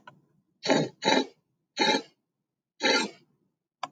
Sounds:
Sniff